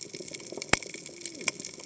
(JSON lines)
{"label": "biophony, cascading saw", "recorder": "HydroMoth"}